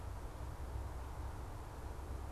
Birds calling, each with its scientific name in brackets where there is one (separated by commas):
Belted Kingfisher (Megaceryle alcyon)